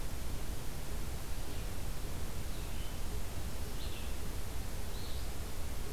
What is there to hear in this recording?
Red-eyed Vireo